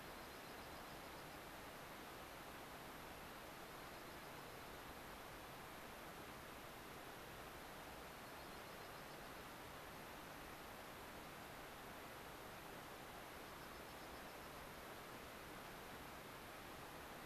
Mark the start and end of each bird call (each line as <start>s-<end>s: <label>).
0.0s-1.4s: Dark-eyed Junco (Junco hyemalis)
3.6s-4.8s: Dark-eyed Junco (Junco hyemalis)
7.9s-9.2s: Dark-eyed Junco (Junco hyemalis)
13.3s-14.7s: Dark-eyed Junco (Junco hyemalis)